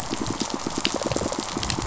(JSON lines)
{"label": "biophony, pulse", "recorder": "SoundTrap 500"}
{"label": "biophony, rattle response", "recorder": "SoundTrap 500"}